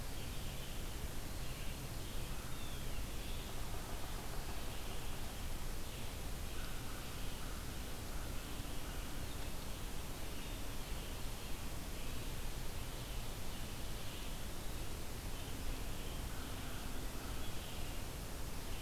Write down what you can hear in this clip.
Red-eyed Vireo, American Crow, Blue Jay